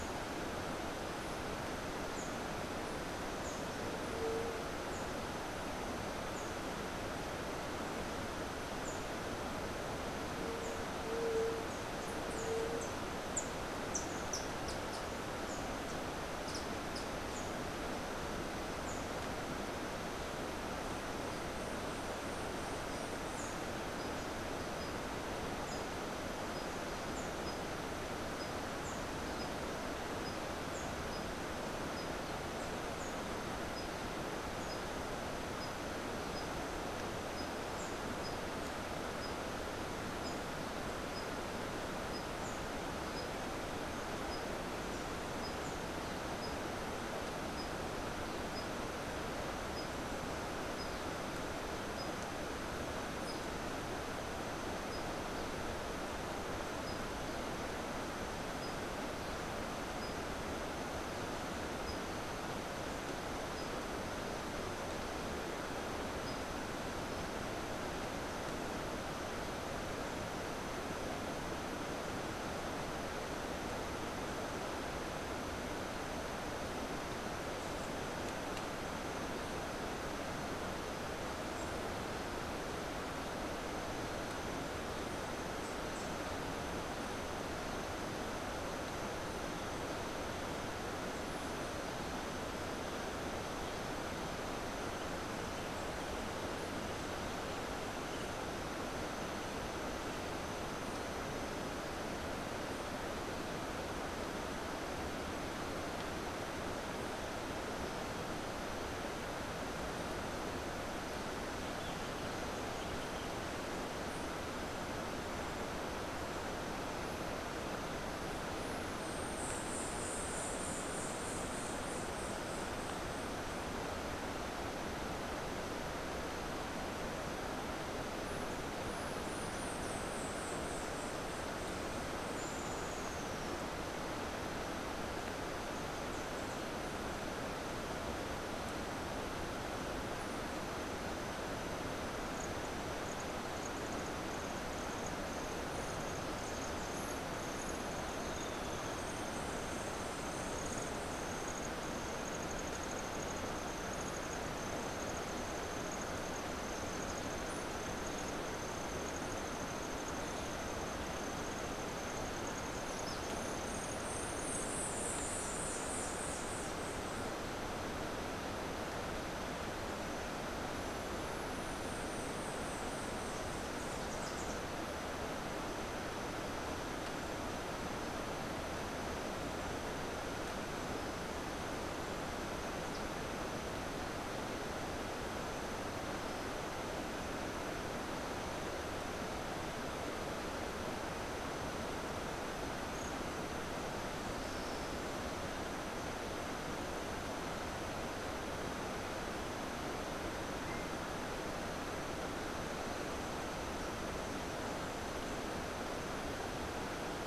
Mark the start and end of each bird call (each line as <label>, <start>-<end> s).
Rufous-tailed Hummingbird (Amazilia tzacatl), 13.2-17.2 s
White-eared Ground-Sparrow (Melozone leucotis), 118.9-123.2 s
White-eared Ground-Sparrow (Melozone leucotis), 128.8-131.7 s
Rufous-tailed Hummingbird (Amazilia tzacatl), 132.3-133.6 s
White-eared Ground-Sparrow (Melozone leucotis), 163.5-167.3 s
White-eared Ground-Sparrow (Melozone leucotis), 171.8-174.1 s